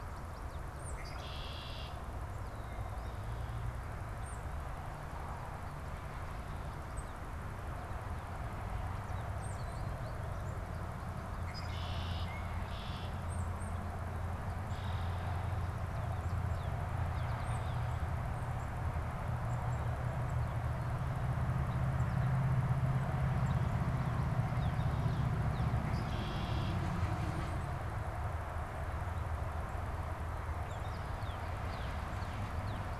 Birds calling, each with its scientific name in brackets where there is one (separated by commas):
Red-winged Blackbird (Agelaius phoeniceus), American Goldfinch (Spinus tristis), Northern Cardinal (Cardinalis cardinalis), Tufted Titmouse (Baeolophus bicolor)